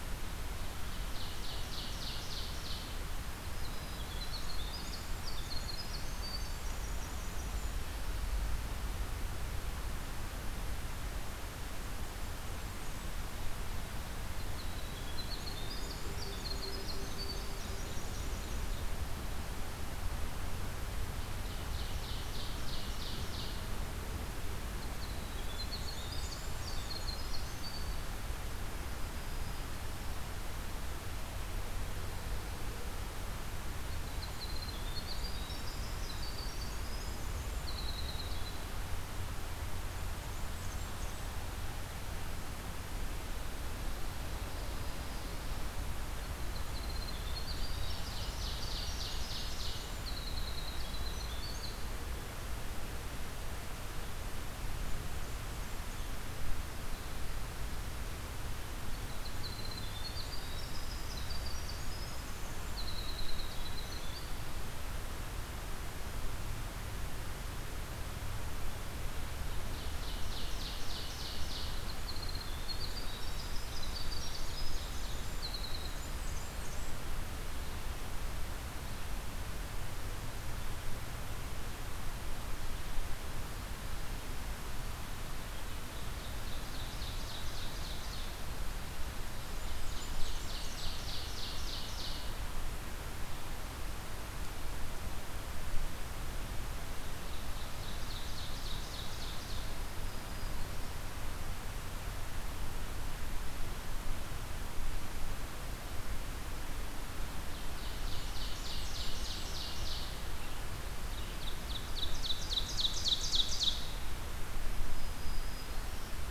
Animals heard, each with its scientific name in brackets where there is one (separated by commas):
Black-throated Green Warbler (Setophaga virens), Winter Wren (Troglodytes hiemalis), Ovenbird (Seiurus aurocapilla), Blackburnian Warbler (Setophaga fusca)